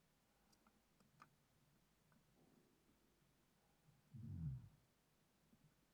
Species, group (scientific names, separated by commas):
Broughtonia domogledi, Orthoptera